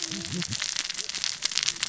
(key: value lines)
label: biophony, cascading saw
recorder: SoundTrap 600 or HydroMoth